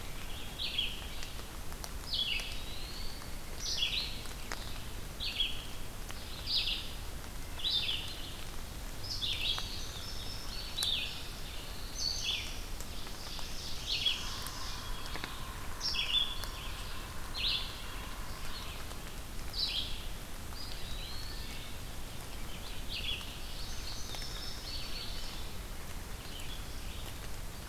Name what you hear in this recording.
Wood Thrush, Red-eyed Vireo, Eastern Wood-Pewee, Indigo Bunting, Black-throated Blue Warbler, Ovenbird, Yellow-bellied Sapsucker